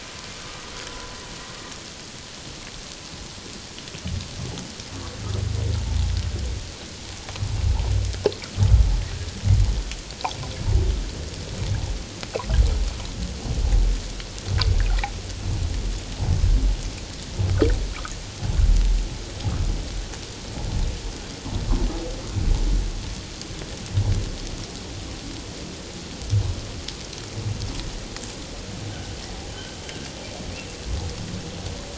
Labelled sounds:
29.5	29.8	humpback whale, 2.9 to 3.2 kHz

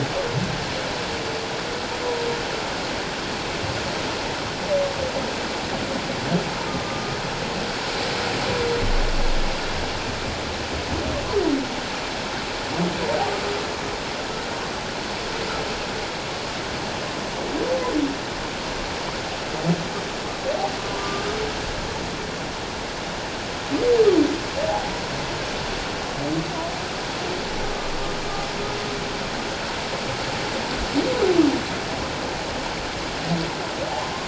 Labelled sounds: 6.7	7.2	humpback whale, 1.1 to 1.3 kHz
21.0	21.2	humpback whale, 1.16 to 1.25 kHz

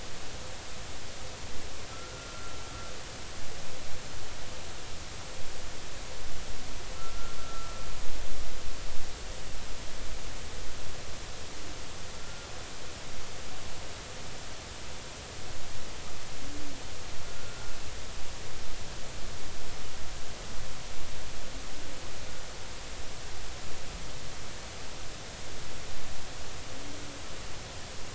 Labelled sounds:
1.9	2.5	humpback whale, 1.3 to 1.5 kHz
7.0	7.7	humpback whale, 1.3 to 1.4 kHz
12.1	12.5	humpback whale, 1.3 to 1.4 kHz
17.2	17.7	humpback whale, 1.3 to 1.4 kHz

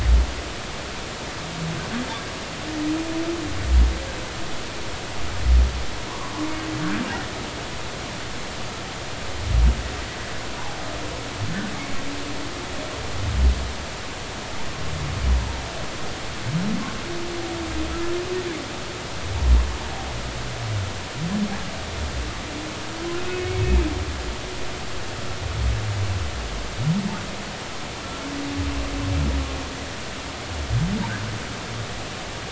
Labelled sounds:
6.1	6.3	humpback whale, 0.90 to 1.2 kHz
23.2	23.6	humpback whale, 2.1 to 2.6 kHz

